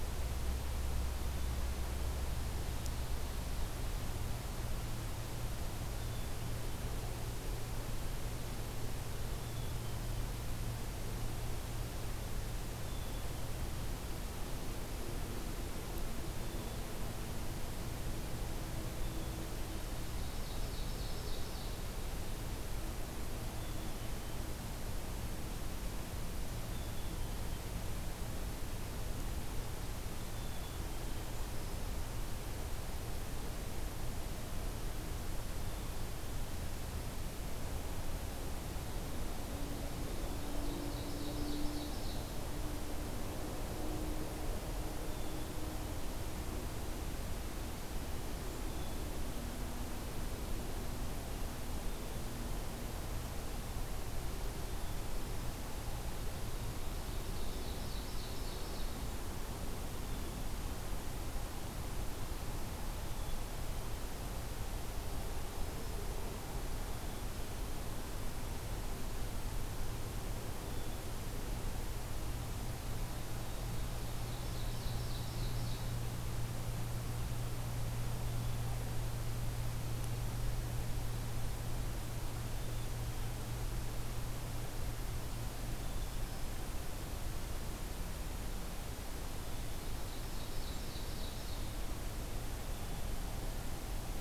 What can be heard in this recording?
Black-capped Chickadee, Ovenbird, Black-throated Green Warbler